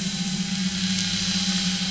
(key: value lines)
label: anthrophony, boat engine
recorder: SoundTrap 500